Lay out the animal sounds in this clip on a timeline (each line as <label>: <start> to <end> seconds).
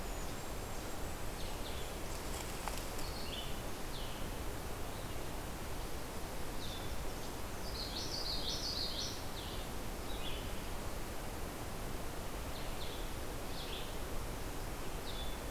Golden-crowned Kinglet (Regulus satrapa): 0.0 to 2.1 seconds
Red-eyed Vireo (Vireo olivaceus): 1.1 to 15.5 seconds
Common Yellowthroat (Geothlypis trichas): 7.6 to 9.2 seconds